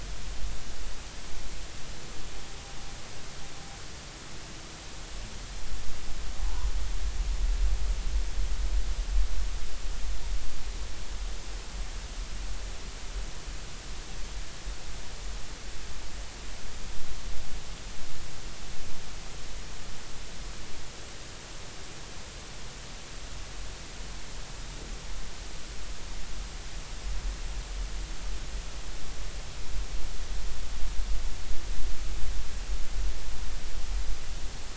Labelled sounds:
6.4	6.7	humpback whale, 0.80 to 1.1 kHz

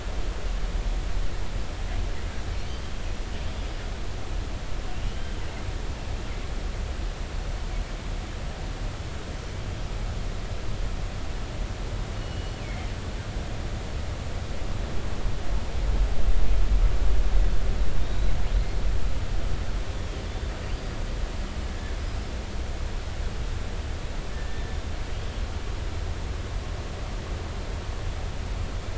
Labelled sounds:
5.0	5.4	killer whale, northern resident, G clan, 2.8 to 3.2 kHz
12.2	12.9	killer whale, northern resident, G clan, GG subclan, call N23ii, 2.0 to 3.0 kHz
18.0	18.8	killer whale, northern resident, G clan, GG subclan, call N28, 3.5 to 4.3 kHz
20.6	21.0	killer whale, northern resident, G clan, GG subclan, call N28, 4.6 to 4.8 kHz
21.7	21.9	killer whale, northern resident, G clan, 1.7 to 1.8 kHz
24.3	24.8	killer whale, northern resident, G clan, 1.7 to 1.8 kHz

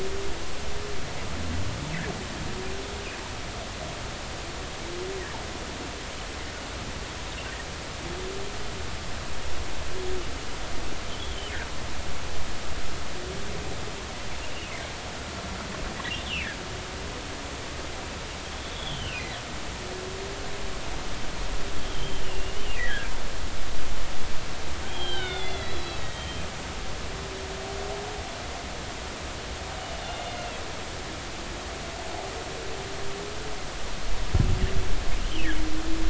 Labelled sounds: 11.2	11.5	humpback whale, 2.9 to 3.6 kHz
16.2	16.5	humpback whale, 2.1 to 3.7 kHz
18.6	19.3	humpback whale, 2.3 to 3.6 kHz
21.9	23.1	humpback whale, 1.5 to 3.4 kHz
24.9	26.4	humpback whale, 1.4 to 4.1 kHz
30.4	30.6	humpback whale, 2.5 to 2.9 kHz

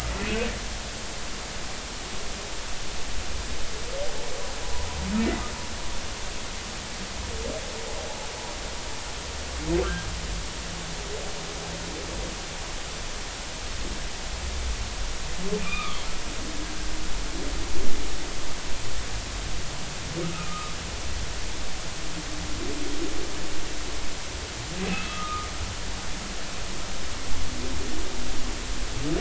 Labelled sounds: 4.6	4.9	humpback whale, 0.93 to 1.0 kHz
15.6	16.0	humpback whale, 1.1 to 2.6 kHz
20.3	20.7	humpback whale, 1.2 to 1.4 kHz
24.8	25.5	humpback whale, 1.2 to 2.7 kHz

